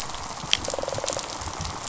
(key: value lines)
label: biophony, rattle response
recorder: SoundTrap 500